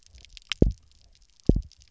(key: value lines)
label: biophony, double pulse
recorder: SoundTrap 300